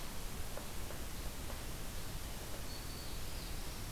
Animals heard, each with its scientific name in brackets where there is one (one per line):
Black-throated Green Warbler (Setophaga virens)
Northern Parula (Setophaga americana)